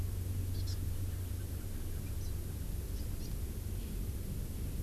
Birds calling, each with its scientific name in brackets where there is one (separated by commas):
Hawaii Amakihi (Chlorodrepanis virens), House Finch (Haemorhous mexicanus)